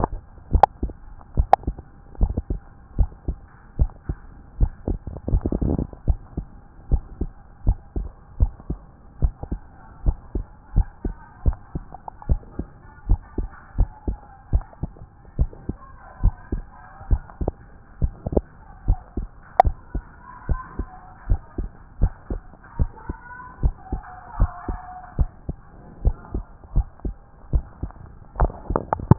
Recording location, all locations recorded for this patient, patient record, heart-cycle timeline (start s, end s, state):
tricuspid valve (TV)
aortic valve (AV)+pulmonary valve (PV)+tricuspid valve (TV)+mitral valve (MV)
#Age: Child
#Sex: Male
#Height: 131.0 cm
#Weight: 25.3 kg
#Pregnancy status: False
#Murmur: Absent
#Murmur locations: nan
#Most audible location: nan
#Systolic murmur timing: nan
#Systolic murmur shape: nan
#Systolic murmur grading: nan
#Systolic murmur pitch: nan
#Systolic murmur quality: nan
#Diastolic murmur timing: nan
#Diastolic murmur shape: nan
#Diastolic murmur grading: nan
#Diastolic murmur pitch: nan
#Diastolic murmur quality: nan
#Outcome: Abnormal
#Campaign: 2014 screening campaign
0.00	6.06	unannotated
6.06	6.18	S1
6.18	6.36	systole
6.36	6.46	S2
6.46	6.90	diastole
6.90	7.02	S1
7.02	7.20	systole
7.20	7.30	S2
7.30	7.66	diastole
7.66	7.78	S1
7.78	7.96	systole
7.96	8.08	S2
8.08	8.40	diastole
8.40	8.52	S1
8.52	8.68	systole
8.68	8.78	S2
8.78	9.22	diastole
9.22	9.34	S1
9.34	9.50	systole
9.50	9.60	S2
9.60	10.04	diastole
10.04	10.16	S1
10.16	10.34	systole
10.34	10.44	S2
10.44	10.76	diastole
10.76	10.86	S1
10.86	11.04	systole
11.04	11.14	S2
11.14	11.44	diastole
11.44	11.56	S1
11.56	11.74	systole
11.74	11.84	S2
11.84	12.28	diastole
12.28	12.40	S1
12.40	12.58	systole
12.58	12.68	S2
12.68	13.08	diastole
13.08	13.20	S1
13.20	13.38	systole
13.38	13.48	S2
13.48	13.78	diastole
13.78	13.90	S1
13.90	14.06	systole
14.06	14.18	S2
14.18	14.52	diastole
14.52	14.64	S1
14.64	14.82	systole
14.82	14.92	S2
14.92	15.38	diastole
15.38	15.50	S1
15.50	15.68	systole
15.68	15.76	S2
15.76	16.22	diastole
16.22	16.34	S1
16.34	16.52	systole
16.52	16.62	S2
16.62	17.10	diastole
17.10	17.22	S1
17.22	17.42	systole
17.42	17.52	S2
17.52	18.02	diastole
18.02	18.12	S1
18.12	18.34	systole
18.34	18.44	S2
18.44	18.86	diastole
18.86	18.98	S1
18.98	19.18	systole
19.18	19.28	S2
19.28	19.64	diastole
19.64	19.76	S1
19.76	19.94	systole
19.94	20.04	S2
20.04	20.48	diastole
20.48	20.60	S1
20.60	20.78	systole
20.78	20.88	S2
20.88	21.28	diastole
21.28	21.40	S1
21.40	21.58	systole
21.58	21.68	S2
21.68	22.00	diastole
22.00	22.12	S1
22.12	22.30	systole
22.30	22.40	S2
22.40	22.78	diastole
22.78	22.90	S1
22.90	23.08	systole
23.08	23.18	S2
23.18	23.62	diastole
23.62	23.74	S1
23.74	23.92	systole
23.92	24.02	S2
24.02	24.38	diastole
24.38	24.50	S1
24.50	24.68	systole
24.68	24.78	S2
24.78	25.18	diastole
25.18	25.30	S1
25.30	25.48	systole
25.48	25.56	S2
25.56	26.04	diastole
26.04	26.16	S1
26.16	26.34	systole
26.34	26.44	S2
26.44	26.74	diastole
26.74	26.86	S1
26.86	27.04	systole
27.04	27.14	S2
27.14	27.52	diastole
27.52	27.64	S1
27.64	27.82	systole
27.82	27.92	S2
27.92	28.38	diastole
28.38	29.18	unannotated